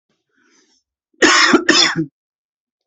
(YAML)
expert_labels:
- quality: good
  cough_type: dry
  dyspnea: false
  wheezing: false
  stridor: false
  choking: false
  congestion: false
  nothing: true
  diagnosis: healthy cough
  severity: pseudocough/healthy cough
age: 38
gender: male
respiratory_condition: false
fever_muscle_pain: false
status: symptomatic